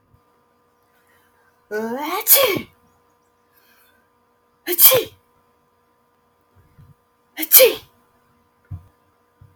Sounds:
Sneeze